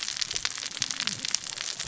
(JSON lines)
{"label": "biophony, cascading saw", "recorder": "SoundTrap 600 or HydroMoth"}